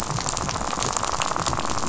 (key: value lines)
label: biophony, rattle
recorder: SoundTrap 500